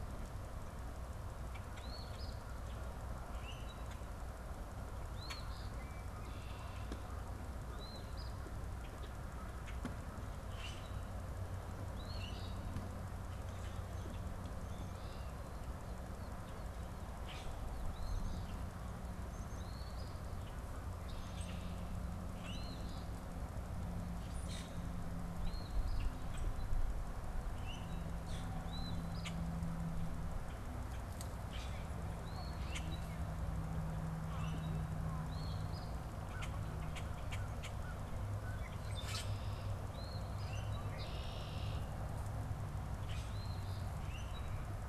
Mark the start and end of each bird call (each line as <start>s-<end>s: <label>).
1.7s-2.4s: Eastern Phoebe (Sayornis phoebe)
3.3s-3.8s: Common Grackle (Quiscalus quiscula)
5.1s-5.7s: Eastern Phoebe (Sayornis phoebe)
5.7s-6.9s: Red-winged Blackbird (Agelaius phoeniceus)
7.7s-8.4s: Eastern Phoebe (Sayornis phoebe)
8.7s-11.0s: Common Grackle (Quiscalus quiscula)
11.8s-12.6s: Eastern Phoebe (Sayornis phoebe)
17.1s-17.7s: Common Grackle (Quiscalus quiscula)
17.9s-18.5s: Eastern Phoebe (Sayornis phoebe)
19.4s-20.1s: Eastern Phoebe (Sayornis phoebe)
22.5s-23.1s: Eastern Phoebe (Sayornis phoebe)
24.3s-24.8s: Common Grackle (Quiscalus quiscula)
25.4s-26.1s: Eastern Phoebe (Sayornis phoebe)
27.4s-28.5s: Common Grackle (Quiscalus quiscula)
28.6s-29.3s: Eastern Phoebe (Sayornis phoebe)
29.1s-29.5s: Common Grackle (Quiscalus quiscula)
31.4s-31.9s: Common Grackle (Quiscalus quiscula)
32.2s-32.9s: Eastern Phoebe (Sayornis phoebe)
32.6s-32.9s: Common Grackle (Quiscalus quiscula)
34.2s-34.8s: Common Grackle (Quiscalus quiscula)
35.2s-35.9s: Eastern Phoebe (Sayornis phoebe)
36.2s-37.7s: Common Grackle (Quiscalus quiscula)
36.2s-38.7s: American Crow (Corvus brachyrhynchos)
38.5s-39.7s: Common Grackle (Quiscalus quiscula)
38.6s-39.8s: Red-winged Blackbird (Agelaius phoeniceus)
39.9s-40.6s: Eastern Phoebe (Sayornis phoebe)
40.4s-41.1s: Common Grackle (Quiscalus quiscula)
40.7s-42.0s: Red-winged Blackbird (Agelaius phoeniceus)
42.9s-43.5s: Common Grackle (Quiscalus quiscula)
43.3s-43.9s: Eastern Phoebe (Sayornis phoebe)
44.0s-44.5s: Common Grackle (Quiscalus quiscula)